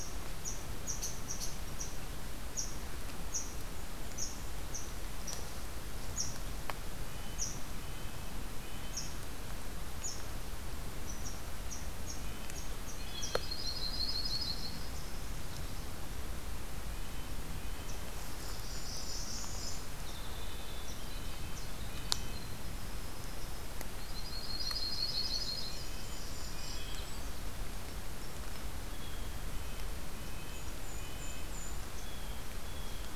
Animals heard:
Yellow-rumped Warbler (Setophaga coronata), Red Crossbill (Loxia curvirostra), unidentified call, Blue Jay (Cyanocitta cristata), Golden-crowned Kinglet (Regulus satrapa), Red Squirrel (Tamiasciurus hudsonicus), Winter Wren (Troglodytes hiemalis), Black-throated Blue Warbler (Setophaga caerulescens), Red-breasted Nuthatch (Sitta canadensis)

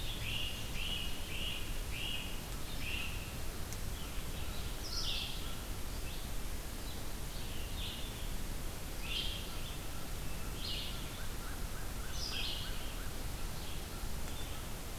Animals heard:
American Crow (Corvus brachyrhynchos), Great Crested Flycatcher (Myiarchus crinitus), Red-eyed Vireo (Vireo olivaceus)

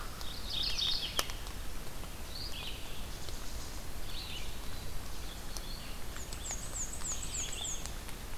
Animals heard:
Hermit Thrush (Catharus guttatus), Red-eyed Vireo (Vireo olivaceus), Mourning Warbler (Geothlypis philadelphia), Black-and-white Warbler (Mniotilta varia)

